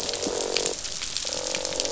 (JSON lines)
{"label": "biophony, croak", "recorder": "SoundTrap 500"}